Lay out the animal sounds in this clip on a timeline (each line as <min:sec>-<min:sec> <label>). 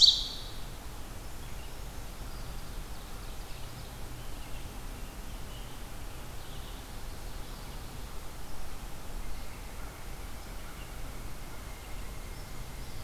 0:00.0-0:00.7 Ovenbird (Seiurus aurocapilla)
0:02.2-0:04.0 Ovenbird (Seiurus aurocapilla)
0:04.0-0:05.7 American Robin (Turdus migratorius)
0:06.2-0:07.0 American Goldfinch (Spinus tristis)
0:09.0-0:13.0 Northern Flicker (Colaptes auratus)